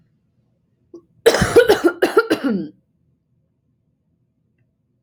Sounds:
Cough